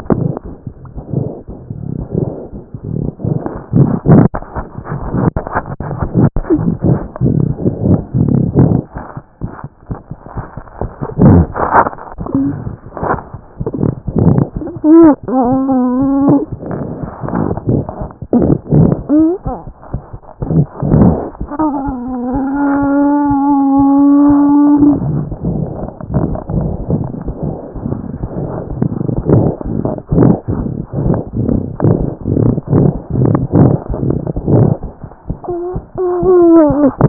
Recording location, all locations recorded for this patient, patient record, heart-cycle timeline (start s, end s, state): mitral valve (MV)
aortic valve (AV)+mitral valve (MV)
#Age: Infant
#Sex: Male
#Height: nan
#Weight: 8.5 kg
#Pregnancy status: False
#Murmur: Unknown
#Murmur locations: nan
#Most audible location: nan
#Systolic murmur timing: nan
#Systolic murmur shape: nan
#Systolic murmur grading: nan
#Systolic murmur pitch: nan
#Systolic murmur quality: nan
#Diastolic murmur timing: nan
#Diastolic murmur shape: nan
#Diastolic murmur grading: nan
#Diastolic murmur pitch: nan
#Diastolic murmur quality: nan
#Outcome: Abnormal
#Campaign: 2014 screening campaign
0.00	8.86	unannotated
8.86	8.95	diastole
8.95	9.04	S1
9.04	9.16	systole
9.16	9.22	S2
9.22	9.42	diastole
9.42	9.51	S1
9.51	9.63	systole
9.63	9.69	S2
9.69	9.89	diastole
9.89	9.98	S1
9.98	10.11	systole
10.11	10.17	S2
10.17	10.36	diastole
10.36	10.44	S1
10.44	10.58	systole
10.58	10.64	S2
10.64	10.82	diastole
10.82	10.91	S1
10.91	11.02	systole
11.02	11.09	S2
11.09	11.27	diastole
11.27	37.09	unannotated